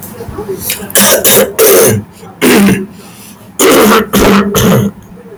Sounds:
Throat clearing